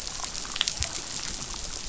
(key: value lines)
label: biophony, damselfish
recorder: SoundTrap 500